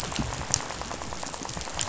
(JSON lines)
{"label": "biophony, rattle", "recorder": "SoundTrap 500"}